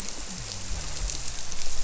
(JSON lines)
{"label": "biophony", "recorder": "SoundTrap 300"}